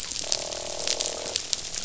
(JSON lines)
{"label": "biophony, croak", "recorder": "SoundTrap 500"}